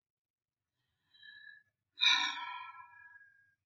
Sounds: Sigh